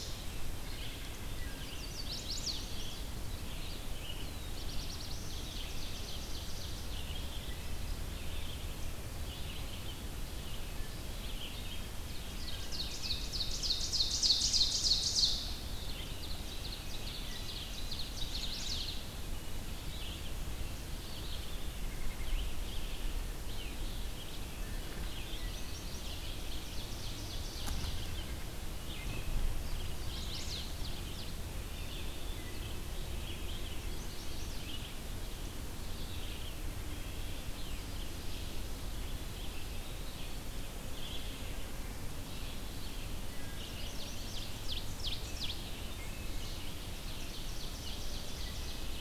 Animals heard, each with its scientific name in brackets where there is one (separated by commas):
Red-breasted Nuthatch (Sitta canadensis), Ovenbird (Seiurus aurocapilla), Wood Thrush (Hylocichla mustelina), Red-eyed Vireo (Vireo olivaceus), Black-throated Blue Warbler (Setophaga caerulescens), Chestnut-sided Warbler (Setophaga pensylvanica)